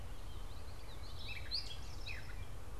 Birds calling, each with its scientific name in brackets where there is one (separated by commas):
Gray Catbird (Dumetella carolinensis), Eastern Towhee (Pipilo erythrophthalmus), Common Yellowthroat (Geothlypis trichas)